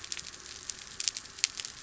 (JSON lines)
{"label": "anthrophony, boat engine", "recorder": "SoundTrap 300"}